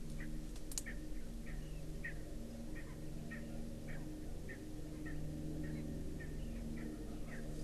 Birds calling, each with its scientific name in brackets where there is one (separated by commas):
Erckel's Francolin (Pternistis erckelii)